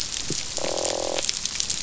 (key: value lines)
label: biophony, croak
recorder: SoundTrap 500